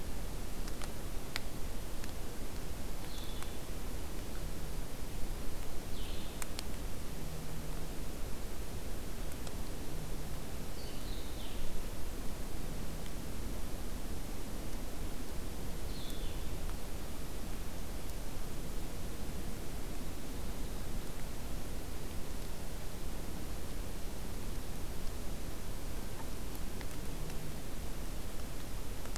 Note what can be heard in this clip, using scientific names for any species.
Vireo solitarius